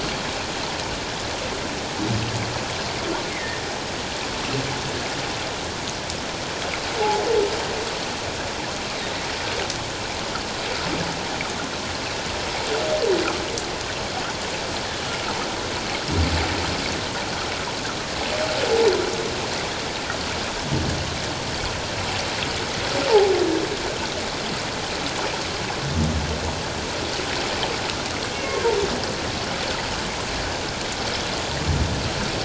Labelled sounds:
3.3	3.7	humpback whale, 1.7 to 2.2 kHz
28.3	28.6	humpback whale, 2.1 to 2.2 kHz

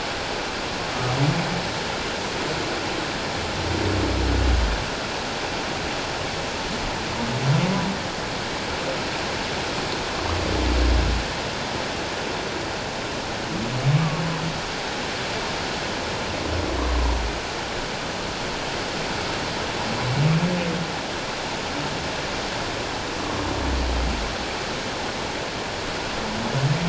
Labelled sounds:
13.9	14.2	humpback whale, 1.0 to 1.2 kHz

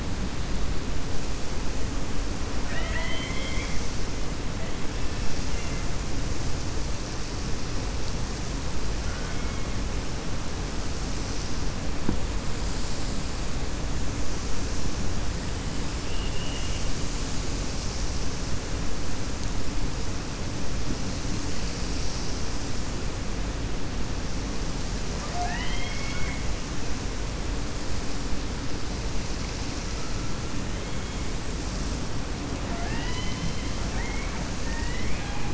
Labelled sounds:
2.6	3.8	killer whale, 0.65 to 4.2 kHz
16.0	16.9	killer whale, 2.1 to 3.5 kHz
25.1	26.4	killer whale, 0.69 to 5.1 kHz
33.8	35.5	killer whale, 0.73 to 4.0 kHz

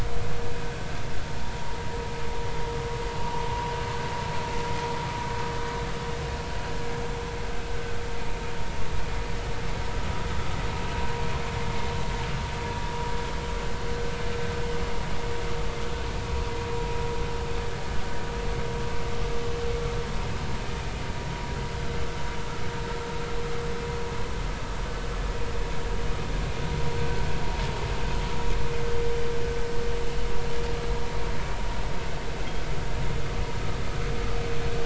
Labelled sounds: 3.2	3.5	vessel noise, 0.83 to 1.1 kHz

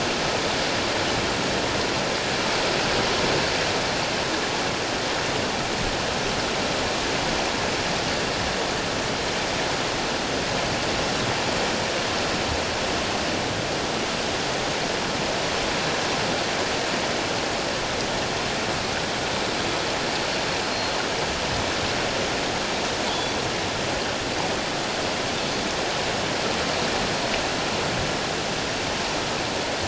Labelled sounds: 23.1	23.4	Pacific white-sided dolphin, 3.1 to 3.5 kHz

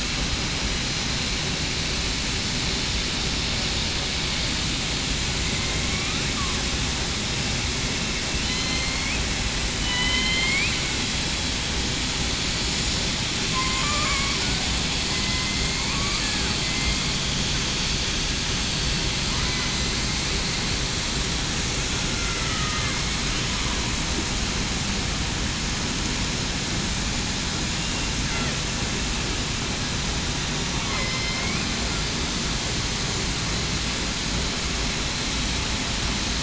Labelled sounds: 5.5	6.2	killer whale, southern resident, 1.1 to 2.2 kHz
8.4	8.9	killer whale, southern resident, 3.0 to 3.2 kHz
9.8	10.6	killer whale, southern resident, 2.9 to 4.1 kHz
15.2	15.9	killer whale, southern resident, 2.0 to 2.3 kHz
22.4	22.8	killer whale, southern resident, 1.2 to 1.4 kHz
30.9	31.7	killer whale, southern resident, 2.0 to 2.5 kHz

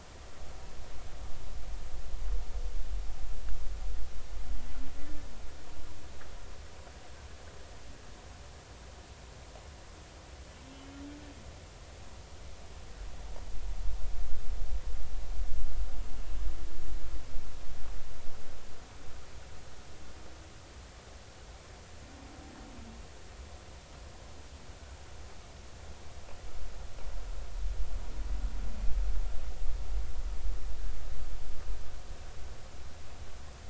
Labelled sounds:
10.7	11.1	humpback whale, 2.9 to 3.1 kHz

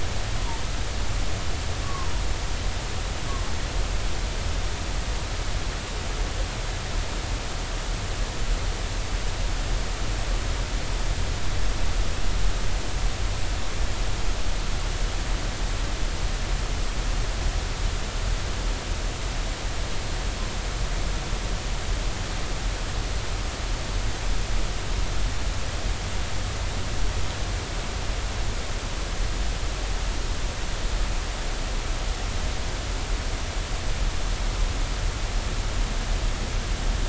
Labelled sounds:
1.8	2.1	humpback whale, 0.99 to 1.2 kHz

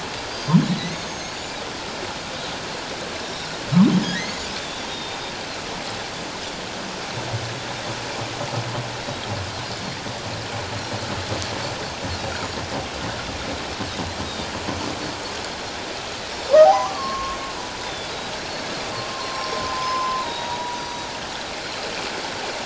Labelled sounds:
0.3	1.6	Pacific white-sided dolphin, 1.9 to 7.2 kHz
3.2	3.5	Pacific white-sided dolphin, 3.6 to 5.7 kHz
4.1	4.5	humpback whale, 1.8 to 4.7 kHz
4.6	5.2	Pacific white-sided dolphin, 3.4 to 3.8 kHz
16.3	16.6	Pacific white-sided dolphin, 5.3 to 5.6 kHz
16.6	17.4	humpback whale, 0.78 to 1.2 kHz
17.8	18.1	Pacific white-sided dolphin, 3.4 to 3.7 kHz
18.9	19.6	humpback whale, 0.78 to 5.6 kHz
19.5	21.1	Pacific white-sided dolphin, 0.81 to 6.2 kHz

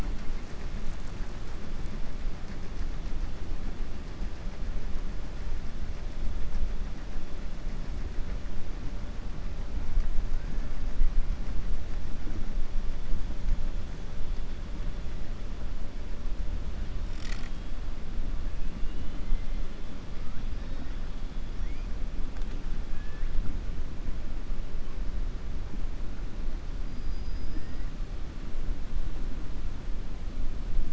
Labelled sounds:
18.8	19.2	killer whale, southern resident, 2.1 to 4.0 kHz
22.9	23.3	killer whale, southern resident, 1.6 to 2.7 kHz
26.8	27.9	killer whale, southern resident, 1.4 to 5.7 kHz

